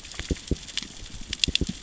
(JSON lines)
{"label": "biophony, knock", "recorder": "SoundTrap 600 or HydroMoth"}